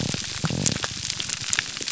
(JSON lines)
{"label": "biophony, grouper groan", "recorder": "SoundTrap 300"}